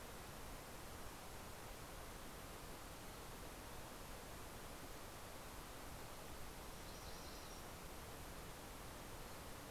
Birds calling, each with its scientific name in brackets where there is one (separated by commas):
MacGillivray's Warbler (Geothlypis tolmiei)